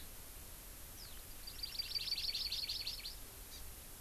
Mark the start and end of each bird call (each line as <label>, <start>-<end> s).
Hawaii Amakihi (Chlorodrepanis virens), 1.5-3.2 s
Hawaii Amakihi (Chlorodrepanis virens), 3.5-3.6 s